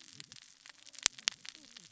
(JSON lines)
{"label": "biophony, cascading saw", "recorder": "SoundTrap 600 or HydroMoth"}